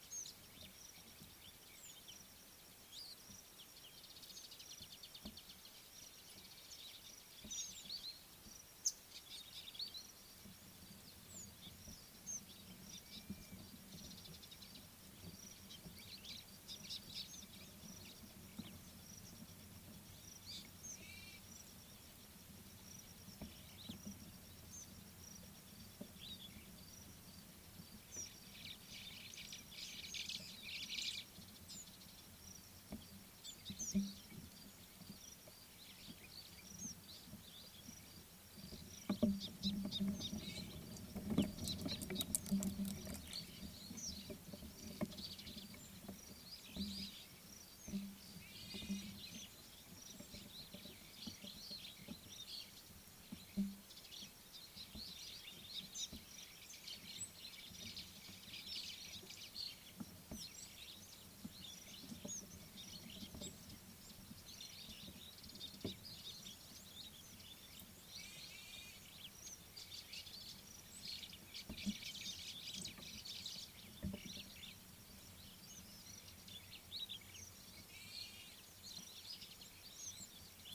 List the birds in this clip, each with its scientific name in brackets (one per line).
Scarlet-chested Sunbird (Chalcomitra senegalensis)
Mariqua Sunbird (Cinnyris mariquensis)
Superb Starling (Lamprotornis superbus)
White-browed Sparrow-Weaver (Plocepasser mahali)